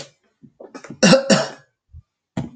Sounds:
Cough